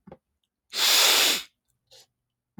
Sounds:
Sniff